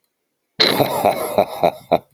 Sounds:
Laughter